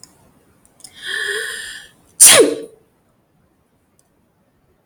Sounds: Sneeze